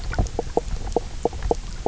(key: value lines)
label: biophony, knock croak
recorder: SoundTrap 300